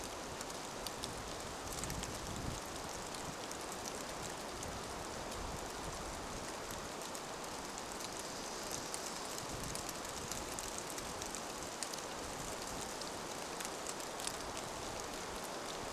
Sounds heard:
Dark-eyed Junco song, rain

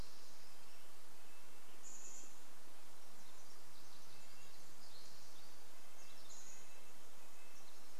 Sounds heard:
Spotted Towhee song, Chestnut-backed Chickadee call, Western Tanager song, Red-breasted Nuthatch song, Pacific Wren song

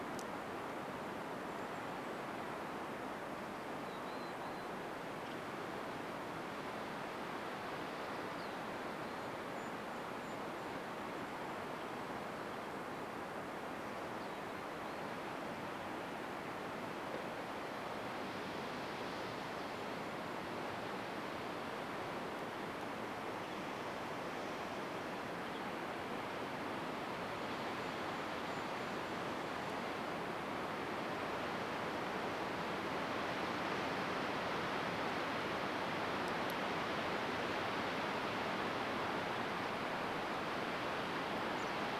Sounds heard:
Chestnut-backed Chickadee call, Western Tanager call, Mountain Chickadee call, Golden-crowned Kinglet song

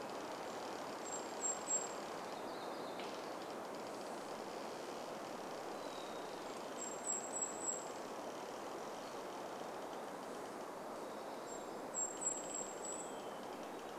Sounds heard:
Red-breasted Nuthatch song, Golden-crowned Kinglet song, Hermit Thrush song, tree creak, warbler song

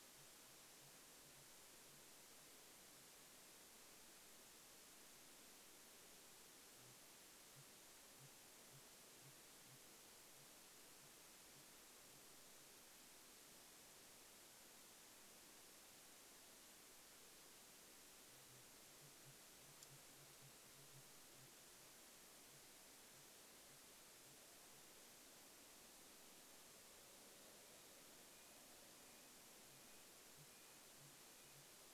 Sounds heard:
Red-breasted Nuthatch song, Sooty Grouse song

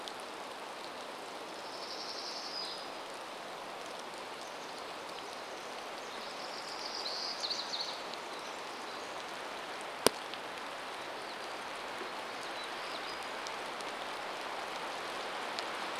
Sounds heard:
Pacific Wren song, rain, warbler song

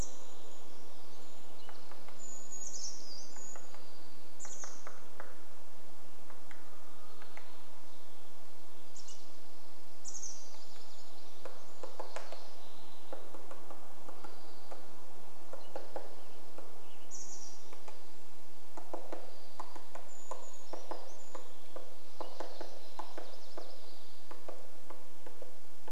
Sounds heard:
Western Tanager song, woodpecker drumming, Brown Creeper song, warbler song, Chestnut-backed Chickadee call, unidentified sound, Townsend's Solitaire call, Spotted Towhee song, MacGillivray's Warbler song

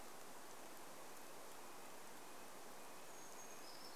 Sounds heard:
Brown Creeper song, Red-breasted Nuthatch song

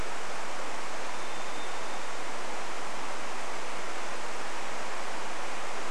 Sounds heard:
Varied Thrush song

